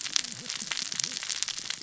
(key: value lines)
label: biophony, cascading saw
recorder: SoundTrap 600 or HydroMoth